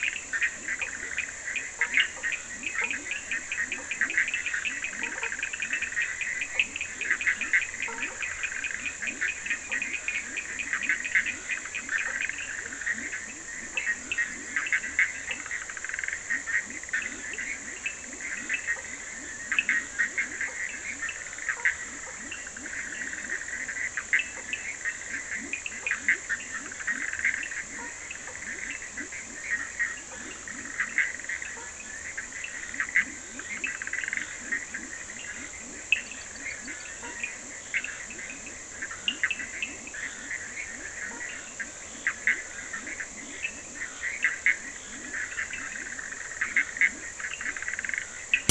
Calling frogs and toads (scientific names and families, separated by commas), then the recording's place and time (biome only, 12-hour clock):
Boana faber (Hylidae), Sphaenorhynchus surdus (Hylidae), Leptodactylus latrans (Leptodactylidae), Boana bischoffi (Hylidae)
Atlantic Forest, 11:30pm